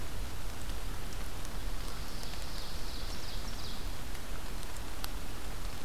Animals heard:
Ovenbird (Seiurus aurocapilla)

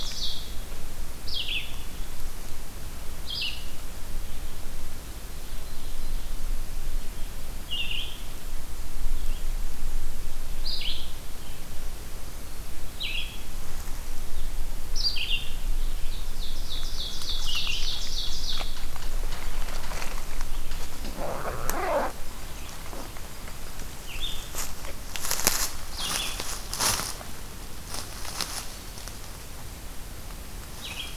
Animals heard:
Red-eyed Vireo (Vireo olivaceus), Ovenbird (Seiurus aurocapilla)

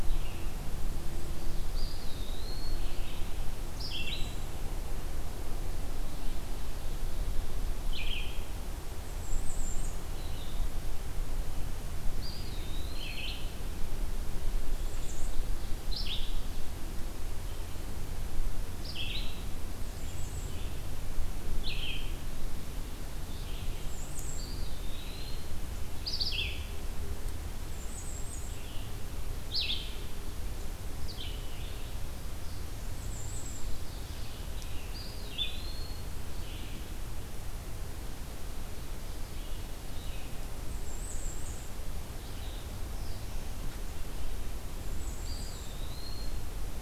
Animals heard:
Ovenbird (Seiurus aurocapilla), Eastern Wood-Pewee (Contopus virens), Blue-headed Vireo (Vireo solitarius), Bay-breasted Warbler (Setophaga castanea)

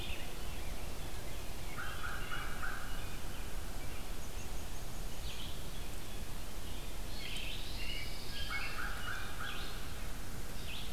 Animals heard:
American Crow (Corvus brachyrhynchos), Eastern Wood-Pewee (Contopus virens), Rose-breasted Grosbeak (Pheucticus ludovicianus), unidentified call, Pine Warbler (Setophaga pinus), American Robin (Turdus migratorius), Red-eyed Vireo (Vireo olivaceus)

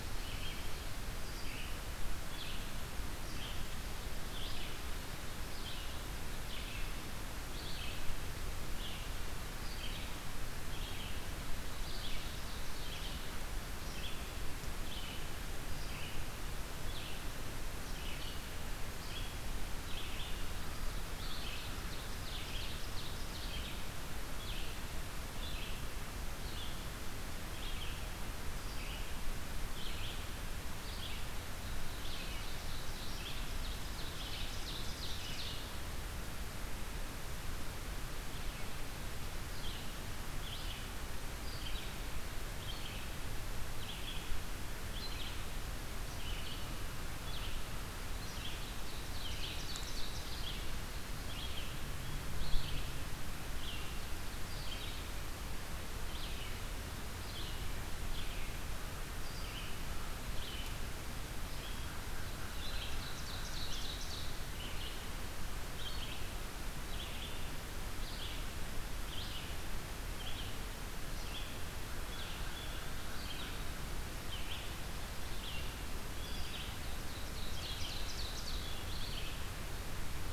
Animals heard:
American Crow (Corvus brachyrhynchos), Red-eyed Vireo (Vireo olivaceus), Ovenbird (Seiurus aurocapilla)

